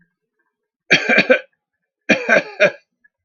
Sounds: Cough